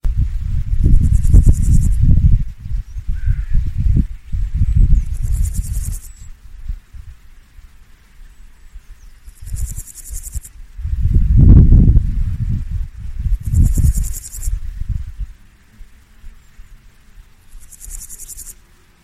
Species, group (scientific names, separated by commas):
Pseudochorthippus parallelus, Orthoptera